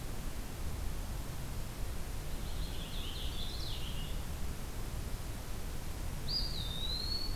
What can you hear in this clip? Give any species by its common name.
Purple Finch, Eastern Wood-Pewee